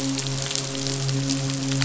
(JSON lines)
{"label": "biophony, midshipman", "recorder": "SoundTrap 500"}